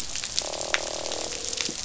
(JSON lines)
{"label": "biophony, croak", "recorder": "SoundTrap 500"}